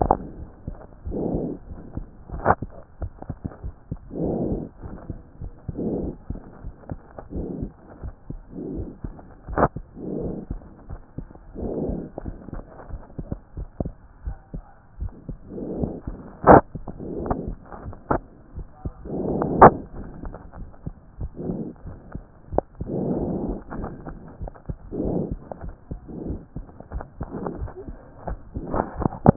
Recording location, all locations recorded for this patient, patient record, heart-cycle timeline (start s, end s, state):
tricuspid valve (TV)
aortic valve (AV)+tricuspid valve (TV)+mitral valve (MV)
#Age: Adolescent
#Sex: Male
#Height: 150.0 cm
#Weight: 38.5 kg
#Pregnancy status: False
#Murmur: Absent
#Murmur locations: nan
#Most audible location: nan
#Systolic murmur timing: nan
#Systolic murmur shape: nan
#Systolic murmur grading: nan
#Systolic murmur pitch: nan
#Systolic murmur quality: nan
#Diastolic murmur timing: nan
#Diastolic murmur shape: nan
#Diastolic murmur grading: nan
#Diastolic murmur pitch: nan
#Diastolic murmur quality: nan
#Outcome: Abnormal
#Campaign: 2014 screening campaign
0.00	12.26	unannotated
12.26	12.36	S1
12.36	12.54	systole
12.54	12.64	S2
12.64	12.90	diastole
12.90	13.00	S1
13.00	13.20	systole
13.20	13.28	S2
13.28	13.56	diastole
13.56	13.68	S1
13.68	13.80	systole
13.80	13.92	S2
13.92	14.24	diastole
14.24	14.36	S1
14.36	14.54	systole
14.54	14.62	S2
14.62	15.00	diastole
15.00	15.12	S1
15.12	15.28	systole
15.28	15.38	S2
15.38	15.78	diastole
15.78	29.36	unannotated